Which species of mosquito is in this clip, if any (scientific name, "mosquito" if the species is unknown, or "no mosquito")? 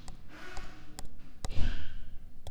Mansonia africanus